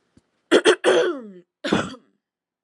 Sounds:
Throat clearing